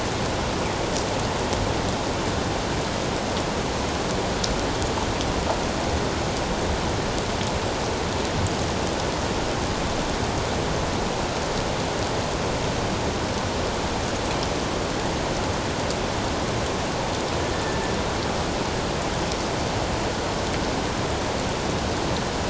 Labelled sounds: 17.5	17.8	killer whale, northern resident, 1.7 to 1.8 kHz

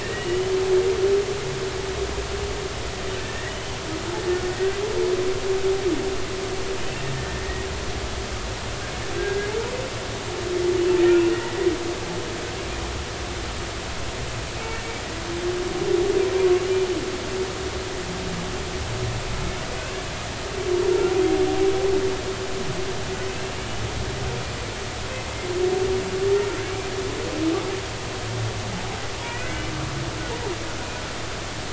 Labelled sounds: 0.0	0.5	humpback whale, 1.7 to 3.1 kHz
3.2	3.8	humpback whale, 1.7 to 3.1 kHz
7.3	7.7	humpback whale, 1.8 to 2.0 kHz
9.2	9.5	humpback whale, 1.5 to 1.7 kHz
11.3	11.7	humpback whale, 1.8 to 2.0 kHz
19.8	20.0	humpback whale, 2.5 to 2.9 kHz
23.3	23.5	humpback whale, 2.6 to 2.8 kHz
29.2	29.7	humpback whale, 1.4 to 2.6 kHz

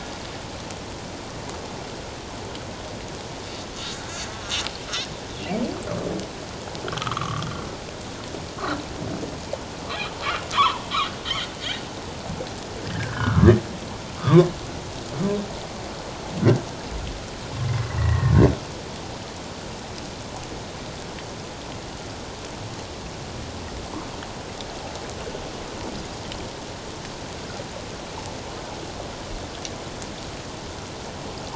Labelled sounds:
4.0	4.3	humpback whale, 1.4 to 1.8 kHz
6.9	7.4	humpback whale, 1.0 to 1.4 kHz
10.5	10.9	humpback whale, 0.88 to 3.5 kHz
12.8	14.5	humpback whale, 0.91 to 1.9 kHz
17.6	18.4	humpback whale, 1.7 to 2.1 kHz

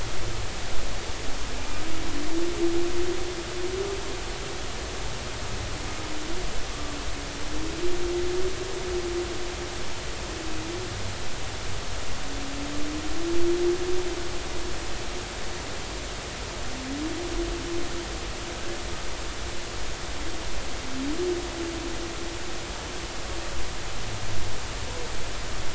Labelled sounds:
6.7	7.0	humpback whale, 1.1 to 1.2 kHz

